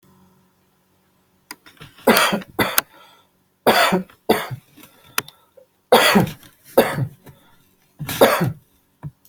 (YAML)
expert_labels:
- quality: good
  cough_type: dry
  dyspnea: false
  wheezing: false
  stridor: false
  choking: false
  congestion: false
  nothing: true
  diagnosis: upper respiratory tract infection
  severity: mild
gender: male
respiratory_condition: false
fever_muscle_pain: false
status: healthy